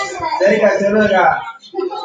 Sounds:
Sniff